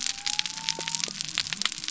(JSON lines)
{"label": "biophony", "recorder": "SoundTrap 300"}